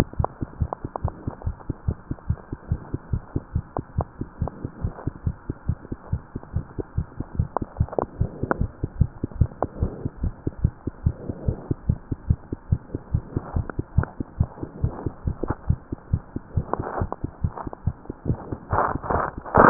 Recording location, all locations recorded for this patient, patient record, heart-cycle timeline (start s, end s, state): mitral valve (MV)
aortic valve (AV)+pulmonary valve (PV)+tricuspid valve (TV)+mitral valve (MV)
#Age: Child
#Sex: Female
#Height: 95.0 cm
#Weight: 14.0 kg
#Pregnancy status: False
#Murmur: Absent
#Murmur locations: nan
#Most audible location: nan
#Systolic murmur timing: nan
#Systolic murmur shape: nan
#Systolic murmur grading: nan
#Systolic murmur pitch: nan
#Systolic murmur quality: nan
#Diastolic murmur timing: nan
#Diastolic murmur shape: nan
#Diastolic murmur grading: nan
#Diastolic murmur pitch: nan
#Diastolic murmur quality: nan
#Outcome: Abnormal
#Campaign: 2015 screening campaign
0.00	12.60	unannotated
12.60	12.70	diastole
12.70	12.80	S1
12.80	12.92	systole
12.92	13.02	S2
13.02	13.12	diastole
13.12	13.24	S1
13.24	13.34	systole
13.34	13.44	S2
13.44	13.54	diastole
13.54	13.66	S1
13.66	13.76	systole
13.76	13.86	S2
13.86	13.95	diastole
13.95	14.06	S1
14.06	14.15	systole
14.15	14.28	S2
14.28	14.38	diastole
14.38	14.50	S1
14.50	14.59	systole
14.59	14.68	S2
14.68	14.82	diastole
14.82	14.94	S1
14.94	15.04	systole
15.04	15.14	S2
15.14	15.24	diastole
15.24	15.38	S1
15.38	15.47	systole
15.47	15.56	S2
15.56	15.67	diastole
15.67	15.80	S1
15.80	15.89	systole
15.89	15.98	S2
15.98	16.12	diastole
16.12	16.22	S1
16.22	16.31	systole
16.31	16.44	S2
16.44	16.56	diastole
16.56	16.66	S1
16.66	16.77	systole
16.77	16.86	S2
16.86	16.98	diastole
16.98	17.10	S1
17.10	17.21	systole
17.21	17.32	S2
17.32	17.43	diastole
17.43	17.54	S1
17.54	17.64	systole
17.64	17.72	S2
17.72	17.85	diastole
17.85	17.93	S1
17.93	18.07	systole
18.07	18.14	S2
18.14	18.27	diastole
18.27	18.38	S1
18.38	18.48	systole
18.48	18.58	S2
18.58	18.69	diastole
18.69	18.79	S1
18.79	18.92	systole
18.92	19.00	S2
19.00	19.12	diastole
19.12	19.70	unannotated